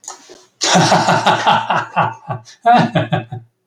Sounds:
Laughter